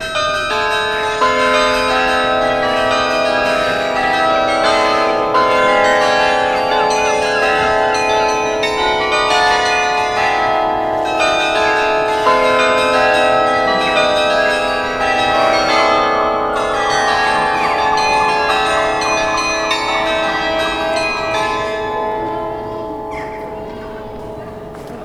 What instrument is being used?
chimes